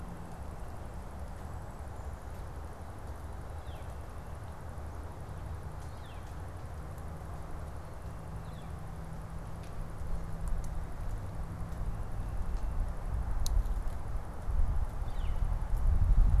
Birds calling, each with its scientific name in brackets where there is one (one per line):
Northern Flicker (Colaptes auratus)